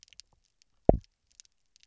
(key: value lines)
label: biophony, double pulse
recorder: SoundTrap 300